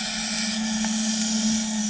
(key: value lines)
label: anthrophony, boat engine
recorder: HydroMoth